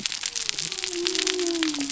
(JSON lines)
{"label": "biophony", "recorder": "SoundTrap 300"}